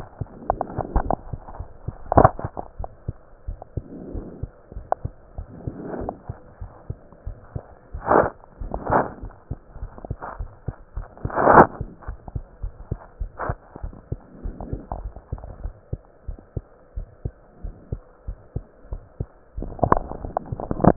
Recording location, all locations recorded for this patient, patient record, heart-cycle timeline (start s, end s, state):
pulmonary valve (PV)
aortic valve (AV)+pulmonary valve (PV)+tricuspid valve (TV)+mitral valve (MV)
#Age: Child
#Sex: Female
#Height: 104.0 cm
#Weight: 20.8 kg
#Pregnancy status: False
#Murmur: Absent
#Murmur locations: nan
#Most audible location: nan
#Systolic murmur timing: nan
#Systolic murmur shape: nan
#Systolic murmur grading: nan
#Systolic murmur pitch: nan
#Systolic murmur quality: nan
#Diastolic murmur timing: nan
#Diastolic murmur shape: nan
#Diastolic murmur grading: nan
#Diastolic murmur pitch: nan
#Diastolic murmur quality: nan
#Outcome: Normal
#Campaign: 2015 screening campaign
0.00	6.37	unannotated
6.37	6.59	diastole
6.59	6.70	S1
6.70	6.87	systole
6.87	6.98	S2
6.98	7.22	diastole
7.22	7.36	S1
7.36	7.54	systole
7.54	7.64	S2
7.64	7.90	diastole
7.90	8.02	S1
8.02	8.14	systole
8.14	8.30	S2
8.30	8.60	diastole
8.60	8.72	S1
8.72	8.88	systole
8.88	9.04	S2
9.04	9.20	diastole
9.20	9.32	S1
9.32	9.48	systole
9.48	9.60	S2
9.60	9.80	diastole
9.80	9.92	S1
9.92	10.06	systole
10.06	10.16	S2
10.16	10.36	diastole
10.36	10.50	S1
10.50	10.64	systole
10.64	10.74	S2
10.74	10.96	diastole
10.96	11.06	S1
11.06	11.20	systole
11.20	11.30	S2
11.30	11.48	diastole
11.48	11.66	S1
11.66	11.78	systole
11.78	11.88	S2
11.88	12.06	diastole
12.06	12.18	S1
12.18	12.33	systole
12.33	12.46	S2
12.46	12.60	diastole
12.60	12.74	S1
12.74	12.88	systole
12.88	12.98	S2
12.98	13.16	diastole
13.16	13.32	S1
13.32	13.46	systole
13.46	13.58	S2
13.58	13.80	diastole
13.80	13.94	S1
13.94	14.08	systole
14.08	14.20	S2
14.20	14.41	diastole
14.41	14.54	S1
14.54	14.68	systole
14.68	14.80	S2
14.80	14.98	diastole
14.98	15.12	S1
15.12	15.28	systole
15.28	15.40	S2
15.40	15.62	diastole
15.62	15.74	S1
15.74	15.90	systole
15.90	16.00	S2
16.00	16.26	diastole
16.26	16.40	S1
16.40	16.54	systole
16.54	16.64	S2
16.64	16.94	diastole
16.94	17.08	S1
17.08	17.22	systole
17.22	17.36	S2
17.36	17.62	diastole
17.62	17.74	S1
17.74	17.90	systole
17.90	18.02	S2
18.02	18.24	diastole
18.24	18.38	S1
18.38	18.52	systole
18.52	18.64	S2
18.64	18.90	diastole
18.90	19.02	S1
19.02	19.16	systole
19.16	19.28	S2
19.28	19.47	diastole
19.47	20.96	unannotated